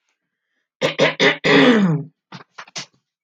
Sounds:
Throat clearing